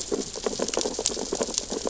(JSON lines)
{"label": "biophony, sea urchins (Echinidae)", "recorder": "SoundTrap 600 or HydroMoth"}